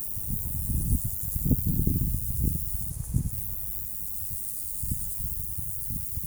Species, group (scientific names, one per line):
Bicolorana bicolor
Orthoptera